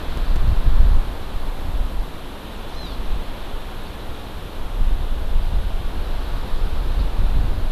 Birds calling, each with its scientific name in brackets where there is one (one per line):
Hawaii Amakihi (Chlorodrepanis virens)